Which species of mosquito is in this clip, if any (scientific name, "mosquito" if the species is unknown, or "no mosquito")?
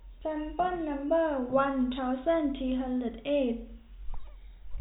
no mosquito